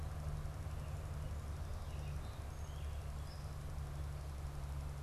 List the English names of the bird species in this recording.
unidentified bird